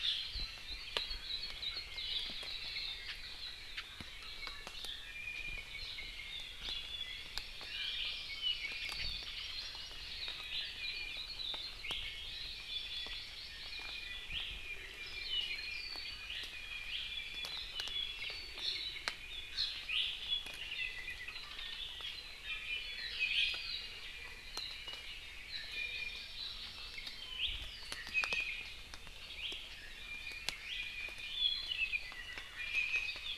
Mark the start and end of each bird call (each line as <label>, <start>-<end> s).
Hawaii Akepa (Loxops coccineus), 0.6-1.8 s
Iiwi (Drepanis coccinea), 4.1-6.5 s
Hawaii Amakihi (Chlorodrepanis virens), 7.1-10.2 s
Apapane (Himatione sanguinea), 8.3-10.1 s
Hawaii Akepa (Loxops coccineus), 10.5-11.8 s
Iiwi (Drepanis coccinea), 10.6-11.3 s
Hawaii Amakihi (Chlorodrepanis virens), 12.0-14.1 s
Iiwi (Drepanis coccinea), 12.6-13.2 s
Iiwi (Drepanis coccinea), 13.7-14.3 s
Apapane (Himatione sanguinea), 14.9-16.5 s
Iiwi (Drepanis coccinea), 16.5-17.6 s
Apapane (Himatione sanguinea), 17.5-19.5 s
Iiwi (Drepanis coccinea), 19.9-20.1 s
Iiwi (Drepanis coccinea), 22.5-22.9 s
Iiwi (Drepanis coccinea), 23.2-23.6 s
Iiwi (Drepanis coccinea), 25.5-26.4 s
Hawaii Amakihi (Chlorodrepanis virens), 25.5-27.4 s
Iiwi (Drepanis coccinea), 27.9-28.7 s
Iiwi (Drepanis coccinea), 29.8-31.6 s
Apapane (Himatione sanguinea), 31.3-32.4 s
Iiwi (Drepanis coccinea), 32.6-33.3 s